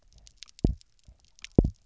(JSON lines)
{"label": "biophony, double pulse", "recorder": "SoundTrap 300"}